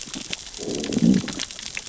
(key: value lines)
label: biophony, growl
recorder: SoundTrap 600 or HydroMoth